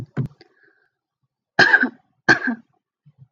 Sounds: Cough